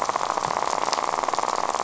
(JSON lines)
{"label": "biophony, rattle", "recorder": "SoundTrap 500"}